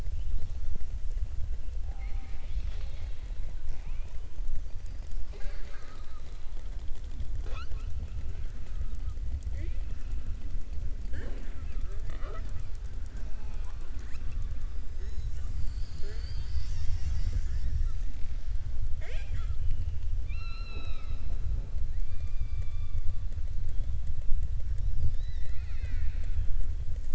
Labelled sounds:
22.0	23.0	killer whale, southern resident, 1.6 to 4.8 kHz

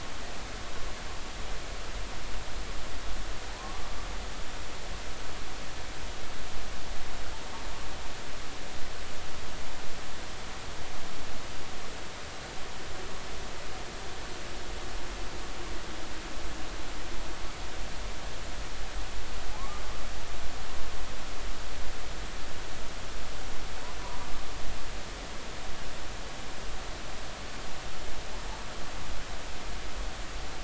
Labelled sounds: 3.5	3.8	humpback whale, 0.83 to 1.2 kHz
19.6	19.8	humpback whale, 0.99 to 1.2 kHz
24.0	24.3	humpback whale, 0.90 to 1.2 kHz

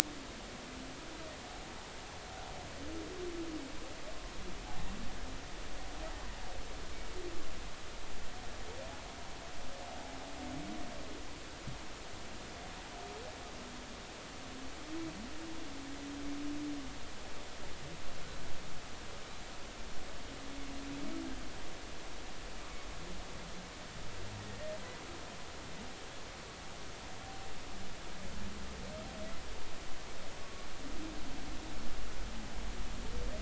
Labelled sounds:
30.4	30.7	humpback whale, 1.1 to 1.2 kHz

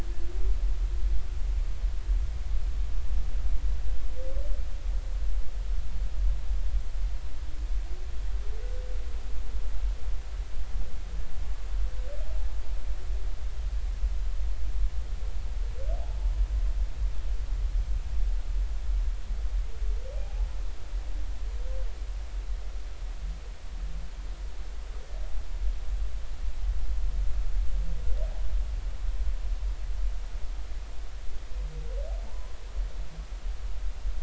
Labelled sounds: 20.2	20.5	humpback whale, 0.80 to 0.90 kHz
32.3	32.5	humpback whale, 0.86 to 1.1 kHz

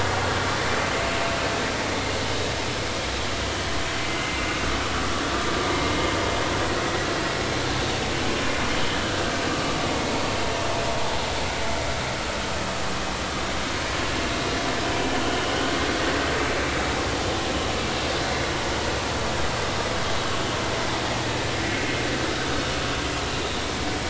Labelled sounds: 9.5	9.8	vessel noise, 1.1 to 1.3 kHz

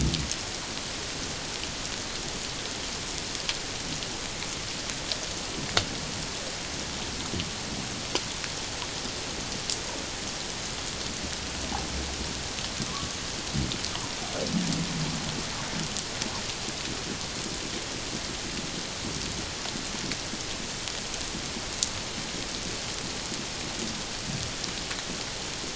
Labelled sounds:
12.9	13.1	humpback whale, 1.0 to 1.2 kHz

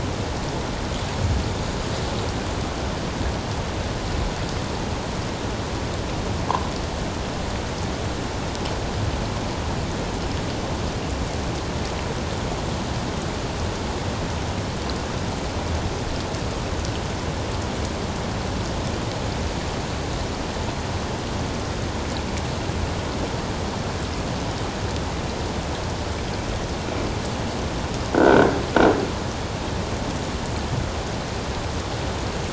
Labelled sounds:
28.1	28.5	croaking sound likely from a nearby submerged object, 1.3 to 1.7 kHz

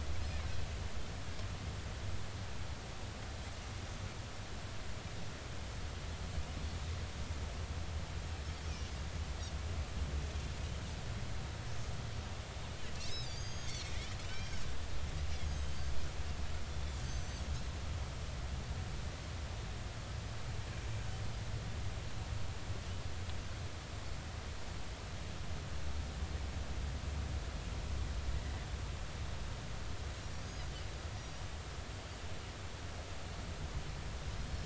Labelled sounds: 13.0	13.9	Pacific white-sided dolphin, 3.1 to 6.6 kHz
14.3	14.6	Pacific white-sided dolphin, 2.9 to 5.7 kHz
15.5	15.8	Pacific white-sided dolphin, 3.1 to 3.2 kHz
17.0	17.3	Pacific white-sided dolphin, 5.9 to 6.3 kHz
28.4	28.6	Pacific white-sided dolphin, 1.9 to 2.0 kHz
31.1	31.4	Pacific white-sided dolphin, 5.6 to 5.9 kHz

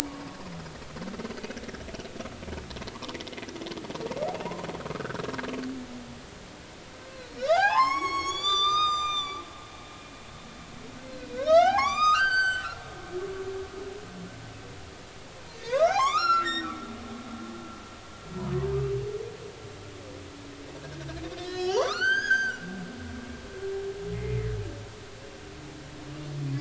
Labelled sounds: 0.1	0.4	humpback whale, 0.99 to 1.1 kHz
4.9	5.2	humpback whale, 1.1 to 1.7 kHz
7.4	9.4	humpback whale, 0.80 to 7.9 kHz
11.1	12.8	humpback whale, 0.80 to 7.8 kHz
15.5	16.7	humpback whale, 0.80 to 8.0 kHz
20.8	22.6	humpback whale, 0.80 to 8.0 kHz
24.1	24.5	humpback whale, 1.9 to 2.2 kHz

